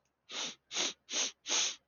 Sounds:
Sniff